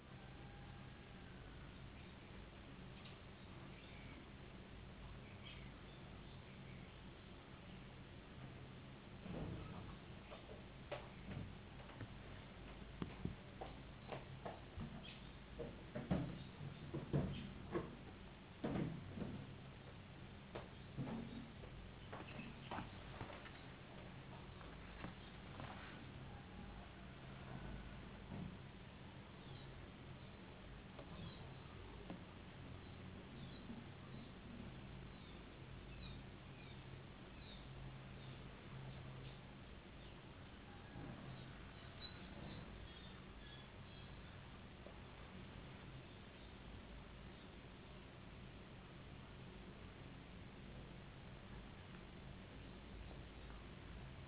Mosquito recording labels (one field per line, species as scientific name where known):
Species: no mosquito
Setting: insect culture